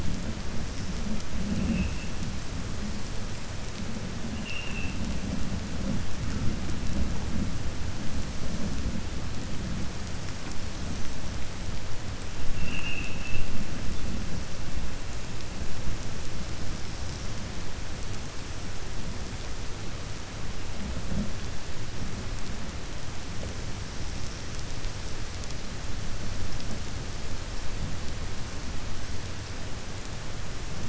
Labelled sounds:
4.3	5.0	vessel noise, 1.8 to 3.3 kHz
12.5	13.5	vessel noise, 1.2 to 3.0 kHz

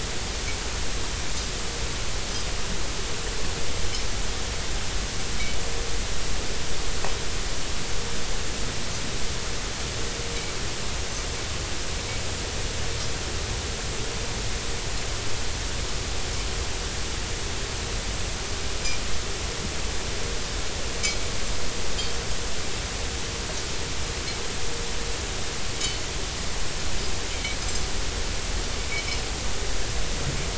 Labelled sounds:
25.8	26.0	anchor noise, 2.9 to 3.1 kHz
27.3	27.6	anchor noise, 2.0 to 2.4 kHz

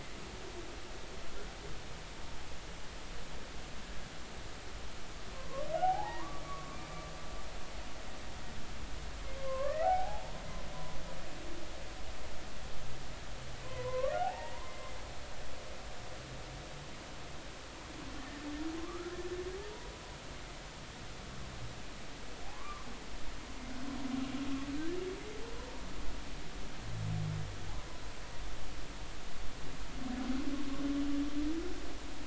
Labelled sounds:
5.3	6.9	humpback whale, 0.80 to 1.3 kHz
9.4	10.3	humpback whale, 0.80 to 2.0 kHz
13.6	14.8	humpback whale, 0.80 to 1.2 kHz
15.3	15.6	humpback whale, 1.7 to 2.0 kHz
18.8	19.2	humpback whale, 0.99 to 1.5 kHz
22.5	22.9	humpback whale, 0.96 to 1.2 kHz

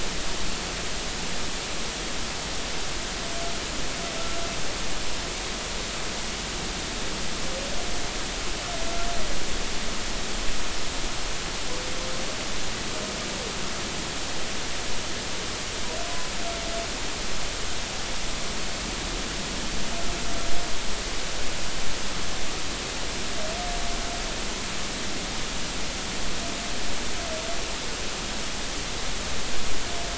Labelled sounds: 16.0	16.3	humpback whale, 0.96 to 1.1 kHz

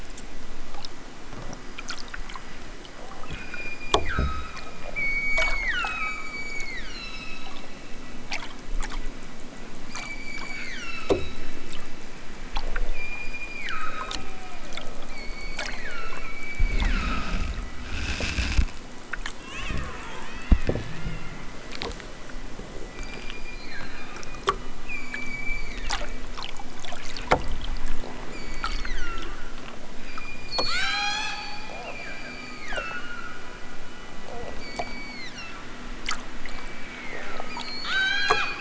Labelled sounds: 3.3	4.7	killer whale, southern Alaska resident, 0.92 to 7.6 kHz
4.9	7.7	killer whale, southern Alaska resident, 0.87 to 8.0 kHz
9.9	11.5	killer whale, southern Alaska resident, 0.83 to 8.0 kHz
12.8	14.3	killer whale, southern Alaska resident, 0.92 to 5.3 kHz
15.0	17.6	killer whale, southern Alaska resident, 0.83 to 5.1 kHz
22.9	24.5	killer whale, southern Alaska resident, 0.87 to 8.0 kHz
24.9	26.3	killer whale, southern Alaska resident, 1.0 to 8.0 kHz
28.2	29.5	killer whale, southern Alaska resident, 0.87 to 7.5 kHz
30.0	33.5	killer whale, southern Alaska resident, 0.55 to 8.0 kHz
34.5	35.8	killer whale, southern Alaska resident, 1.0 to 7.4 kHz
36.3	38.5	killer whale, southern Alaska resident, 0.87 to 8.0 kHz

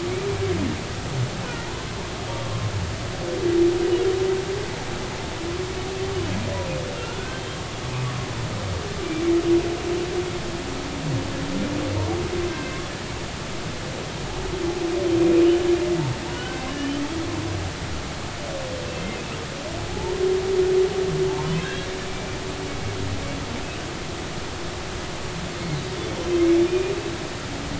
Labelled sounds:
9.0	9.3	humpback whale, 2.2 to 2.4 kHz
16.3	17.0	humpback whale, 1.4 to 3.1 kHz
18.8	20.1	humpback whale, 0.80 to 2.7 kHz
26.4	26.9	humpback whale, 2.1 to 2.5 kHz

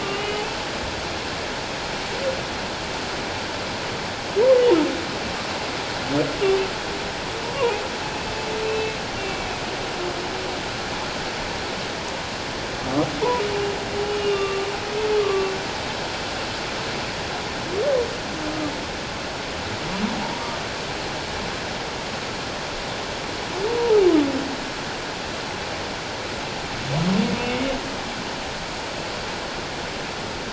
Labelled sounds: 7.6	7.8	humpback whale, 0.78 to 1.2 kHz
8.7	9.5	humpback whale, 2.2 to 2.8 kHz
14.0	14.7	humpback whale, 1.1 to 2.9 kHz
15.2	15.5	humpback whale, 1.0 to 1.2 kHz

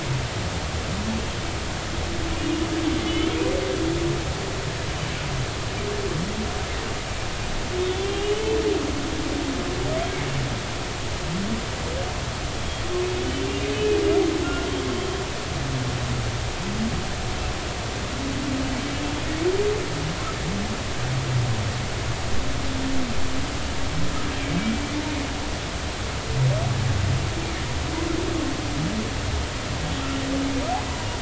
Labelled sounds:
3.0	3.3	humpback whale, 3.4 to 3.5 kHz
7.8	8.6	humpback whale, 2.7 to 3.5 kHz
13.7	14.0	humpback whale, 2.4 to 2.6 kHz
14.4	14.7	humpback whale, 1.3 to 1.5 kHz

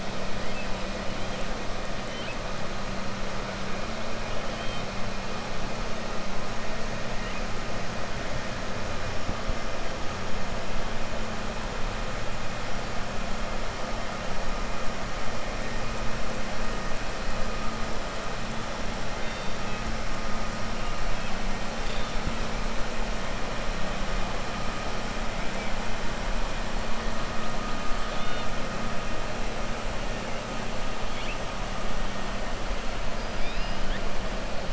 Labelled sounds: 28.0	28.5	killer whale, 2.2 to 4.5 kHz

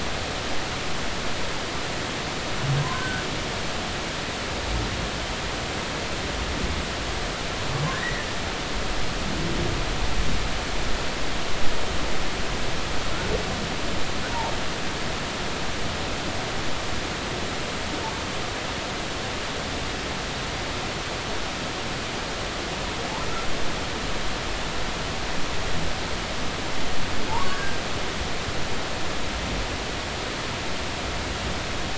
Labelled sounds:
2.8	3.2	humpback whale, 0.93 to 1.7 kHz
7.9	8.3	humpback whale, 1.4 to 2.1 kHz
27.3	27.8	humpback whale, 0.83 to 1.7 kHz

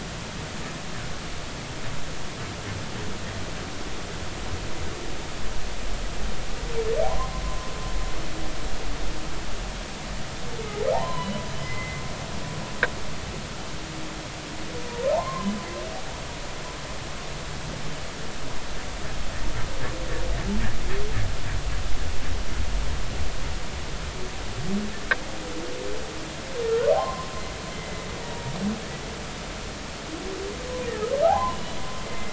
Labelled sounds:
7.0	7.7	humpback whale, 0.80 to 1.1 kHz
10.9	12.0	humpback whale, 0.80 to 3.1 kHz
15.1	15.5	humpback whale, 0.80 to 2.2 kHz
26.9	28.5	humpback whale, 0.80 to 2.1 kHz
31.2	31.8	humpback whale, 0.80 to 3.0 kHz
32.1	32.3	humpback whale, 2.0 to 2.1 kHz

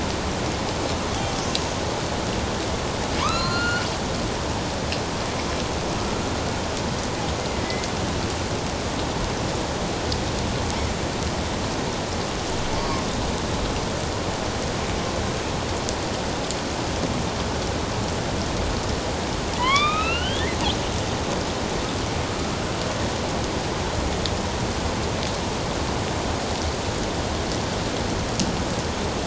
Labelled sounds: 1.1	1.3	killer whale, northern resident, A clan, AB subclan, 3.1 to 3.5 kHz
3.2	3.9	killer whale, northern resident, A clan, AB subclan, 0.91 to 7.2 kHz
7.7	7.9	killer whale, northern resident, A clan, AB subclan, 2.0 to 2.1 kHz
12.8	13.0	killer whale, northern resident, A clan, AB subclan, 1.0 to 1.2 kHz
19.6	20.6	killer whale, northern resident, A clan, AB subclan, 0.91 to 4.4 kHz

